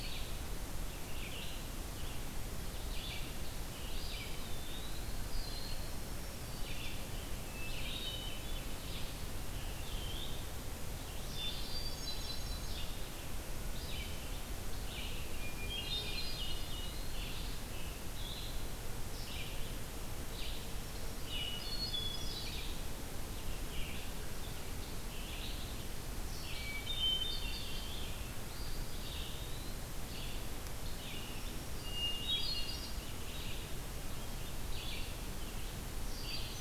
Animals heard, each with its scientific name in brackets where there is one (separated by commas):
Hermit Thrush (Catharus guttatus), Eastern Wood-Pewee (Contopus virens), Black-throated Green Warbler (Setophaga virens), Red-eyed Vireo (Vireo olivaceus)